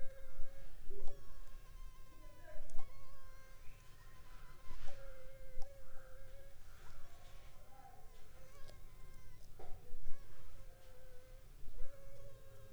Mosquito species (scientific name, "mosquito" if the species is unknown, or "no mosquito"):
Anopheles funestus s.s.